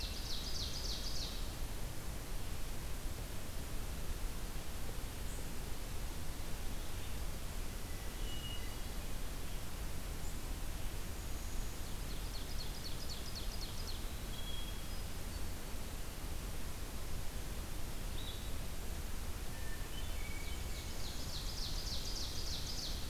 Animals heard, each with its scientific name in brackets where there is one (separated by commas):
Hermit Thrush (Catharus guttatus), Blue-headed Vireo (Vireo solitarius), Ovenbird (Seiurus aurocapilla)